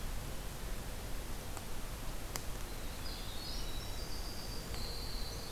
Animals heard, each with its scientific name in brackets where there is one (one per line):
Winter Wren (Troglodytes hiemalis)
Black-capped Chickadee (Poecile atricapillus)